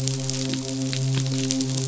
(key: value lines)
label: biophony, midshipman
recorder: SoundTrap 500